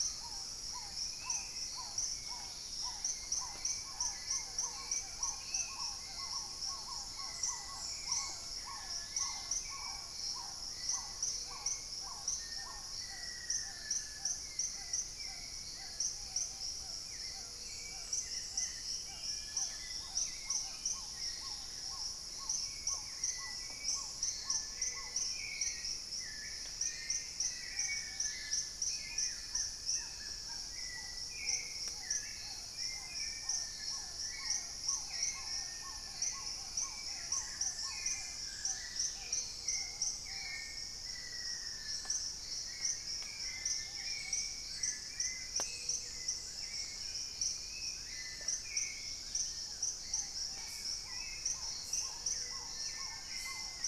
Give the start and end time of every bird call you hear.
0.0s-6.0s: Spot-winged Antshrike (Pygiptila stellaris)
0.0s-40.1s: Black-tailed Trogon (Trogon melanurus)
0.0s-53.9s: Hauxwell's Thrush (Turdus hauxwelli)
2.4s-3.2s: Gray-fronted Dove (Leptotila rufaxilla)
3.9s-5.0s: Little Tinamou (Crypturellus soui)
4.2s-5.3s: Gray-fronted Dove (Leptotila rufaxilla)
8.7s-9.9s: Dusky-capped Greenlet (Pachysylvia hypoxantha)
11.0s-12.3s: Gray-fronted Dove (Leptotila rufaxilla)
12.2s-14.6s: Black-faced Antthrush (Formicarius analis)
15.5s-16.7s: Ruddy Pigeon (Patagioenas subvinacea)
17.1s-18.4s: Gray-fronted Dove (Leptotila rufaxilla)
17.1s-21.0s: Dusky-throated Antshrike (Thamnomanes ardesiacus)
21.0s-21.8s: Dusky-capped Greenlet (Pachysylvia hypoxantha)
24.4s-25.7s: Gray-fronted Dove (Leptotila rufaxilla)
26.6s-28.9s: Black-faced Antthrush (Formicarius analis)
27.3s-28.6s: Ruddy Pigeon (Patagioenas subvinacea)
27.8s-28.9s: Dusky-capped Greenlet (Pachysylvia hypoxantha)
29.0s-30.8s: Buff-throated Woodcreeper (Xiphorhynchus guttatus)
31.0s-32.3s: Gray-fronted Dove (Leptotila rufaxilla)
32.9s-39.0s: Long-billed Woodcreeper (Nasica longirostris)
38.4s-39.5s: Dusky-capped Greenlet (Pachysylvia hypoxantha)
38.8s-40.1s: Gray-fronted Dove (Leptotila rufaxilla)
39.3s-44.5s: Ruddy Pigeon (Patagioenas subvinacea)
40.3s-42.1s: Black-faced Antthrush (Formicarius analis)
42.7s-43.6s: unidentified bird
43.5s-44.5s: Dusky-capped Greenlet (Pachysylvia hypoxantha)
43.5s-53.7s: Little Tinamou (Crypturellus soui)
45.0s-53.9s: Long-billed Woodcreeper (Nasica longirostris)
45.3s-46.6s: Gray-fronted Dove (Leptotila rufaxilla)
48.2s-48.7s: Red-necked Woodpecker (Campephilus rubricollis)
48.7s-49.8s: Dusky-capped Greenlet (Pachysylvia hypoxantha)
49.4s-53.9s: Black-tailed Trogon (Trogon melanurus)
51.0s-53.9s: Spot-winged Antshrike (Pygiptila stellaris)
51.9s-53.2s: Gray-fronted Dove (Leptotila rufaxilla)

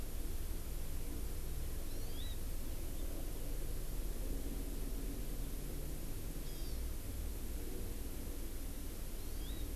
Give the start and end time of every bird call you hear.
1.8s-2.4s: Hawaii Amakihi (Chlorodrepanis virens)
6.4s-6.8s: Hawaii Amakihi (Chlorodrepanis virens)
9.1s-9.7s: Hawaii Amakihi (Chlorodrepanis virens)

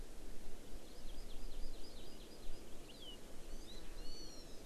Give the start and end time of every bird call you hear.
0.8s-3.1s: Hawaii Amakihi (Chlorodrepanis virens)
3.4s-3.8s: Hawaii Amakihi (Chlorodrepanis virens)
3.9s-4.6s: Hawaiian Hawk (Buteo solitarius)

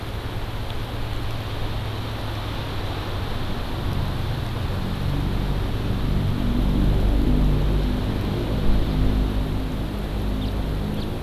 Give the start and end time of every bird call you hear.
10.3s-10.5s: House Finch (Haemorhous mexicanus)
10.9s-11.0s: House Finch (Haemorhous mexicanus)

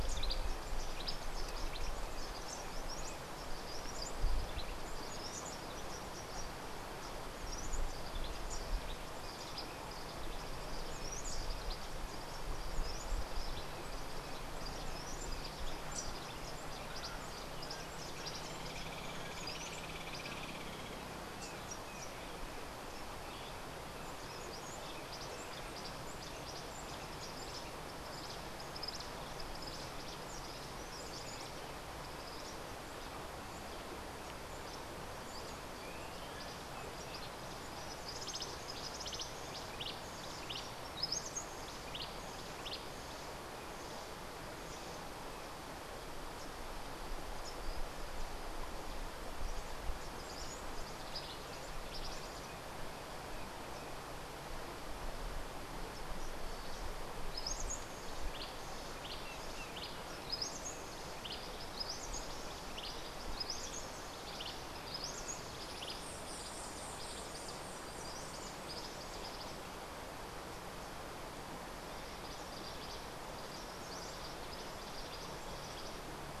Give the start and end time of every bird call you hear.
0.0s-4.5s: Cabanis's Wren (Cantorchilus modestus)
5.0s-18.5s: Cabanis's Wren (Cantorchilus modestus)
18.7s-21.0s: Hoffmann's Woodpecker (Melanerpes hoffmannii)
24.3s-31.8s: Cabanis's Wren (Cantorchilus modestus)
38.0s-43.0s: Cabanis's Wren (Cantorchilus modestus)
50.1s-52.5s: Cabanis's Wren (Cantorchilus modestus)
57.2s-69.9s: Cabanis's Wren (Cantorchilus modestus)
65.8s-68.4s: White-eared Ground-Sparrow (Melozone leucotis)
72.1s-76.1s: Cabanis's Wren (Cantorchilus modestus)

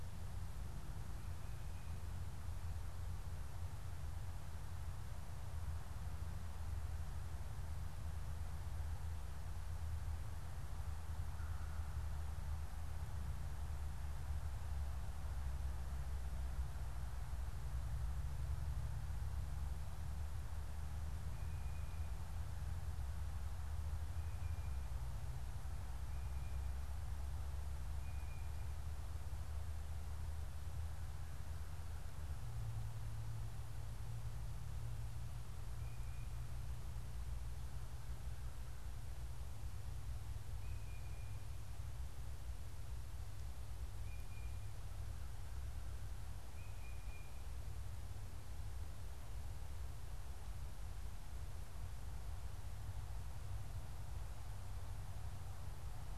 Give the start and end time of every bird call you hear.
11.3s-12.3s: American Crow (Corvus brachyrhynchos)
26.2s-28.8s: Tufted Titmouse (Baeolophus bicolor)
40.5s-41.6s: Tufted Titmouse (Baeolophus bicolor)
44.0s-44.7s: Tufted Titmouse (Baeolophus bicolor)
46.5s-47.5s: Tufted Titmouse (Baeolophus bicolor)

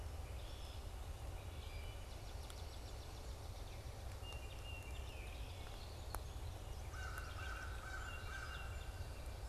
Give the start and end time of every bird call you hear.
0.1s-0.9s: Red-winged Blackbird (Agelaius phoeniceus)
1.3s-2.1s: Wood Thrush (Hylocichla mustelina)
1.8s-3.9s: Swamp Sparrow (Melospiza georgiana)
4.1s-5.9s: Baltimore Oriole (Icterus galbula)
5.6s-6.4s: Red-winged Blackbird (Agelaius phoeniceus)
6.2s-8.0s: Yellow Warbler (Setophaga petechia)
6.9s-8.9s: American Crow (Corvus brachyrhynchos)
7.9s-8.9s: Baltimore Oriole (Icterus galbula)

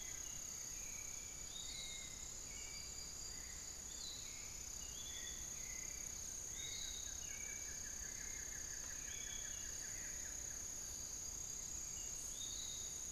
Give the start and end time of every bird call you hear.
0.0s-13.1s: Hauxwell's Thrush (Turdus hauxwelli)
0.0s-13.1s: Piratic Flycatcher (Legatus leucophaius)
6.4s-10.7s: Buff-throated Woodcreeper (Xiphorhynchus guttatus)

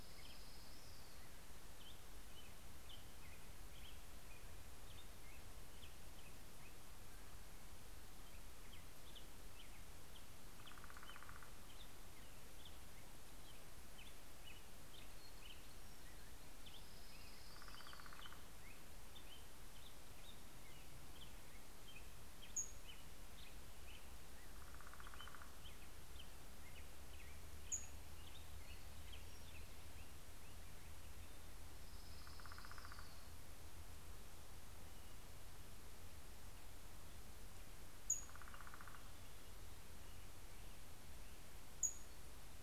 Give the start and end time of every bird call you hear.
0.0s-1.9s: Orange-crowned Warbler (Leiothlypis celata)
0.0s-7.3s: Black-headed Grosbeak (Pheucticus melanocephalus)
8.1s-31.3s: Black-headed Grosbeak (Pheucticus melanocephalus)
10.4s-12.5s: Northern Flicker (Colaptes auratus)
15.8s-19.0s: Orange-crowned Warbler (Leiothlypis celata)
16.8s-18.9s: Northern Flicker (Colaptes auratus)
22.0s-23.6s: Pacific-slope Flycatcher (Empidonax difficilis)
23.8s-26.2s: Northern Flicker (Colaptes auratus)
27.2s-28.4s: Pacific-slope Flycatcher (Empidonax difficilis)
31.5s-33.8s: Northern Flicker (Colaptes auratus)
31.6s-33.9s: Orange-crowned Warbler (Leiothlypis celata)
37.5s-38.8s: Pacific-slope Flycatcher (Empidonax difficilis)
37.6s-39.5s: Northern Flicker (Colaptes auratus)
41.1s-42.6s: Pacific-slope Flycatcher (Empidonax difficilis)

